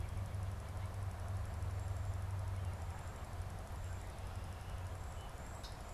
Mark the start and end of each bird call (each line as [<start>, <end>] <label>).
[1.36, 5.93] Cedar Waxwing (Bombycilla cedrorum)